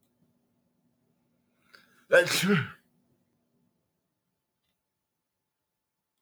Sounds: Sneeze